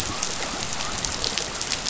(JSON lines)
{"label": "biophony", "recorder": "SoundTrap 500"}